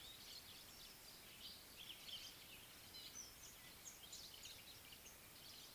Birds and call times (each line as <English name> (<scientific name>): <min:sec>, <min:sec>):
Speckled Mousebird (Colius striatus): 0:03.2